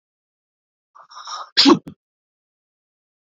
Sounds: Sneeze